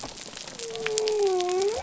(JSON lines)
{"label": "biophony", "recorder": "SoundTrap 300"}